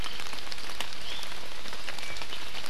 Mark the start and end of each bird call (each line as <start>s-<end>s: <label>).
0.9s-1.3s: Iiwi (Drepanis coccinea)